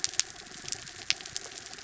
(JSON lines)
{"label": "anthrophony, mechanical", "recorder": "SoundTrap 300"}